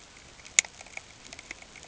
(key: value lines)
label: ambient
recorder: HydroMoth